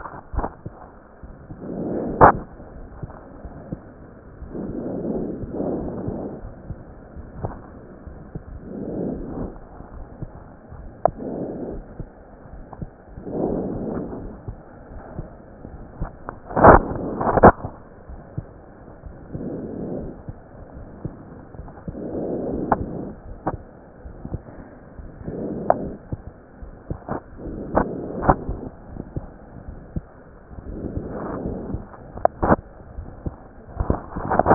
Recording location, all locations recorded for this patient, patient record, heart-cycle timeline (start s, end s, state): aortic valve (AV)
aortic valve (AV)+pulmonary valve (PV)+tricuspid valve (TV)+mitral valve (MV)
#Age: Child
#Sex: Male
#Height: 129.0 cm
#Weight: 23.5 kg
#Pregnancy status: False
#Murmur: Absent
#Murmur locations: nan
#Most audible location: nan
#Systolic murmur timing: nan
#Systolic murmur shape: nan
#Systolic murmur grading: nan
#Systolic murmur pitch: nan
#Systolic murmur quality: nan
#Diastolic murmur timing: nan
#Diastolic murmur shape: nan
#Diastolic murmur grading: nan
#Diastolic murmur pitch: nan
#Diastolic murmur quality: nan
#Outcome: Abnormal
#Campaign: 2015 screening campaign
0.00	14.22	unannotated
14.22	14.30	S1
14.30	14.45	systole
14.45	14.55	S2
14.55	14.91	diastole
14.91	15.01	S1
15.01	15.16	systole
15.16	15.24	S2
15.24	15.70	diastole
15.70	18.05	unannotated
18.05	18.18	S1
18.18	18.33	systole
18.33	18.43	S2
18.43	19.02	diastole
19.02	19.11	S1
19.11	19.29	systole
19.29	19.39	S2
19.39	19.99	diastole
19.99	20.09	S1
20.09	20.24	systole
20.24	20.34	S2
20.34	20.73	diastole
20.73	20.86	S1
20.86	21.01	systole
21.01	21.10	S2
21.10	21.58	diastole
21.58	34.54	unannotated